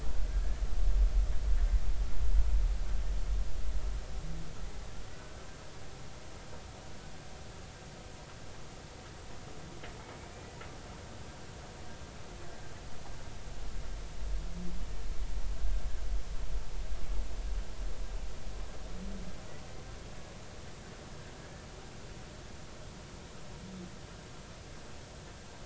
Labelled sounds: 10.3	10.6	humpback whale, 2.3 to 2.5 kHz

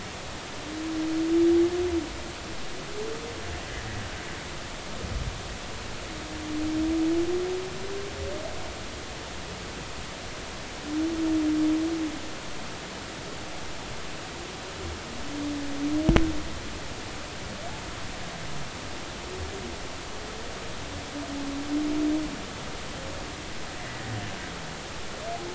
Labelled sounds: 3.7	4.0	humpback whale, 1.6 to 2.1 kHz
23.8	24.1	humpback whale, 1.9 to 2.1 kHz

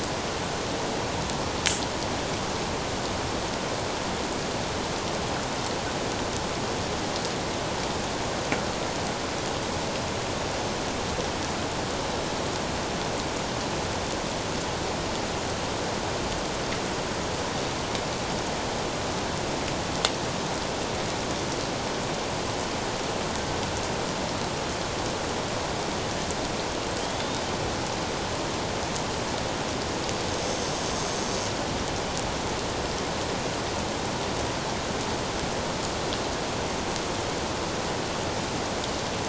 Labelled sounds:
27.0	27.5	killer whale, Bigg's (transient), 3.1 to 3.9 kHz
30.4	30.7	killer whale, Bigg's (transient), 6.1 to 6.5 kHz

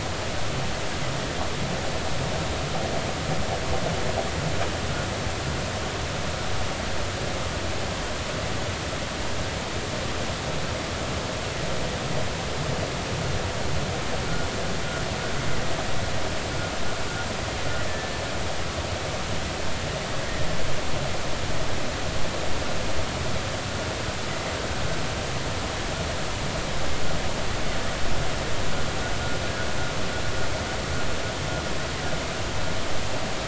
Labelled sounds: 17.9	18.1	killer whale, 1.7 to 1.8 kHz

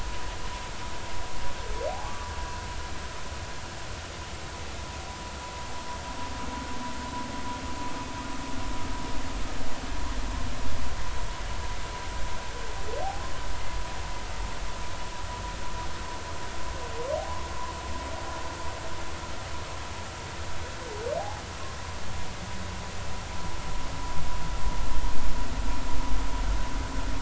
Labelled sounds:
1.9	2.3	humpback whale, 0.80 to 1.2 kHz

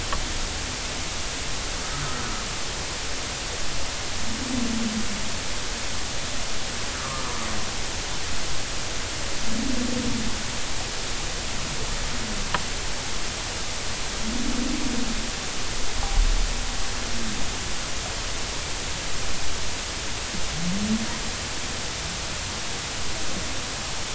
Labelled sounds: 1.9	2.2	humpback whale, 1.2 to 1.4 kHz
6.9	7.2	humpback whale, 1.0 to 1.3 kHz

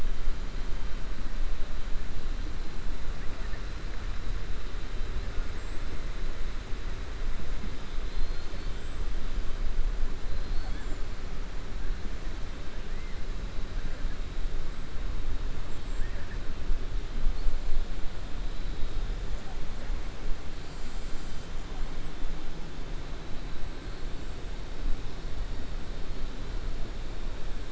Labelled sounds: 8.0	8.7	killer whale, 3.4 to 5.4 kHz
18.5	19.0	killer whale, 3.4 to 4.2 kHz

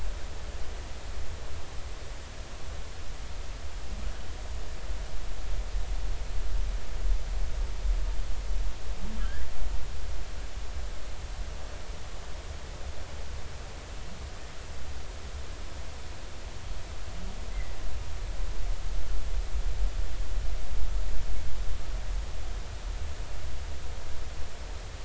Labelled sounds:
17.5	17.7	humpback whale, 1.9 to 2.1 kHz

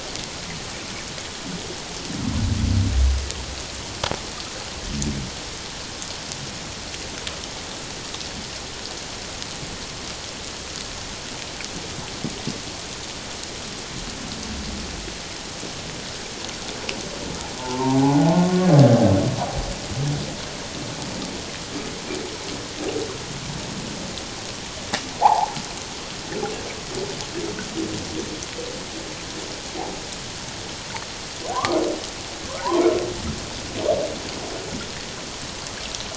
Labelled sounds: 17.5	18.7	humpback whale, 0.78 to 1.2 kHz
25.2	25.6	humpback whale, 0.78 to 1.2 kHz
31.5	31.8	humpback whale, 0.94 to 1.3 kHz

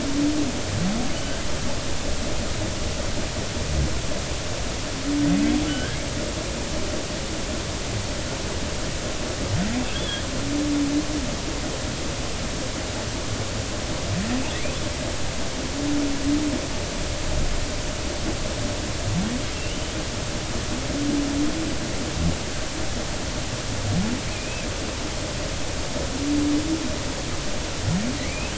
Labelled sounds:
1.2	1.4	humpback whale, 1.5 to 1.7 kHz
5.7	6.0	humpback whale, 1.4 to 1.7 kHz
9.9	10.2	humpback whale, 3.2 to 3.5 kHz
19.5	19.8	humpback whale, 2.6 to 3.1 kHz
24.3	24.7	humpback whale, 2.4 to 2.7 kHz
28.2	28.5	humpback whale, 1.9 to 2.7 kHz

